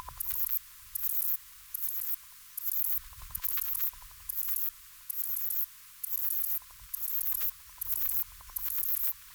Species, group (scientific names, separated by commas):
Ephippigerida areolaria, Orthoptera